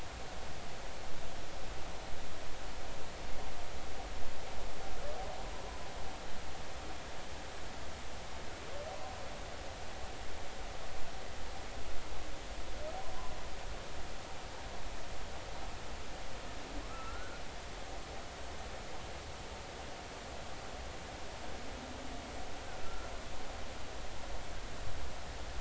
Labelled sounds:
16.9	17.4	humpback whale, 1.2 to 1.6 kHz
22.8	23.1	humpback whale, 1.3 to 1.4 kHz

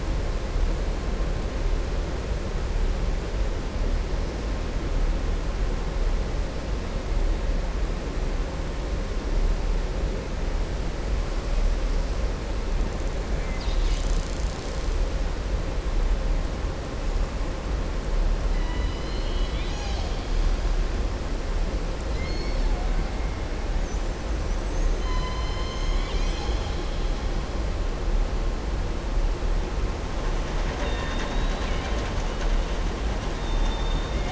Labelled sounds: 22.1	22.7	killer whale, southern resident, 2.0 to 5.5 kHz
30.6	32.5	killer whale, southern resident, 0.71 to 7.1 kHz
33.5	34.0	killer whale, southern resident, 2.9 to 4.5 kHz

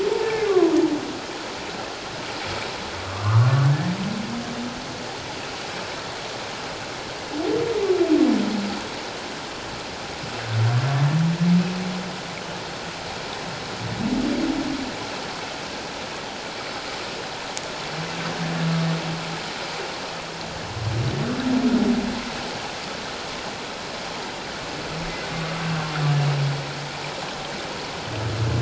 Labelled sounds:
0.2	0.7	humpback whale, 0.94 to 1.8 kHz
3.0	3.9	humpback whale, 0.97 to 1.9 kHz

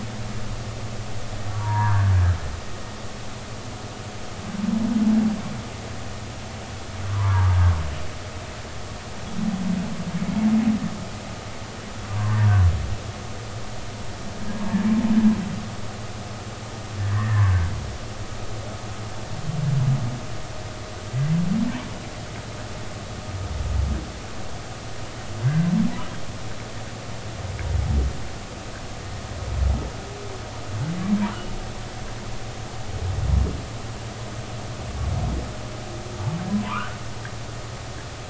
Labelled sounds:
1.5	2.1	humpback whale, 0.90 to 1.8 kHz
7.1	7.5	humpback whale, 0.83 to 1.2 kHz
12.1	12.4	humpback whale, 0.93 to 1.2 kHz
17.1	17.7	humpback whale, 1.5 to 1.9 kHz
36.5	37.0	humpback whale, 0.86 to 1.6 kHz

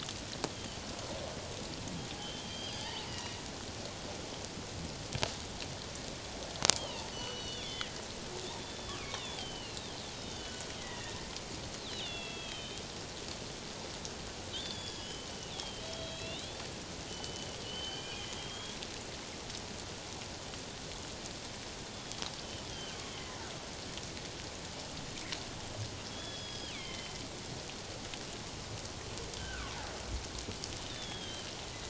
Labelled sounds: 0.5	0.8	killer whale, northern resident, G clan, 2.9 to 3.4 kHz
2.2	3.4	killer whale, northern resident, G clan, 1.7 to 4.9 kHz
6.8	7.9	killer whale, northern resident, G clan, 1.8 to 6.0 kHz
8.6	11.2	killer whale, northern resident, G clan, 1.0 to 4.3 kHz
11.8	12.8	killer whale, northern resident, G clan, 2.4 to 4.3 kHz
14.5	18.8	killer whale, northern resident, G clan, 2.4 to 5.1 kHz
21.9	23.4	killer whale, northern resident, G clan, 1.7 to 3.6 kHz
26.1	27.1	killer whale, northern resident, G clan, 2.0 to 5.1 kHz
29.4	29.8	killer whale, northern resident, G clan, 1.0 to 1.7 kHz
30.9	31.5	killer whale, northern resident, G clan, 3.0 to 3.8 kHz

